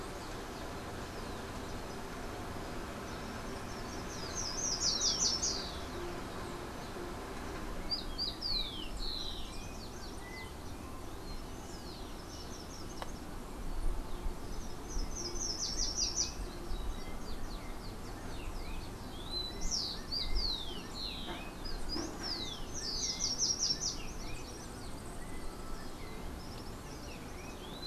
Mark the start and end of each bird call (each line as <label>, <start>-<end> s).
Slate-throated Redstart (Myioborus miniatus), 3.0-6.0 s
Slate-throated Redstart (Myioborus miniatus), 11.7-16.6 s
Rufous-collared Sparrow (Zonotrichia capensis), 19.0-27.9 s
Slate-throated Redstart (Myioborus miniatus), 22.3-24.1 s
Yellow-faced Grassquit (Tiaris olivaceus), 24.3-26.0 s